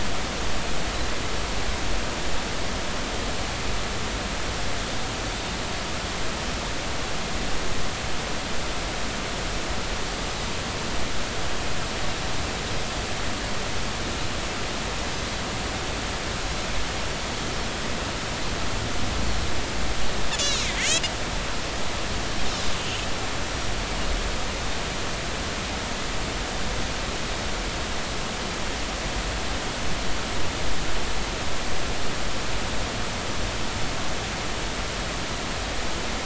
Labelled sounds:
20.3	21.0	Pacific white-sided dolphin, 1.7 to 7.2 kHz

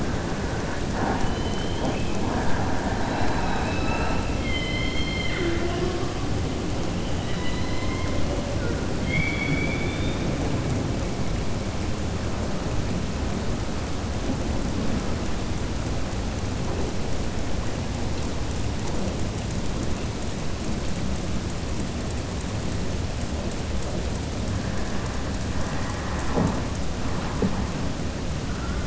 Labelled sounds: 7.1	8.1	killer whale, southern resident, 1.0 to 5.0 kHz

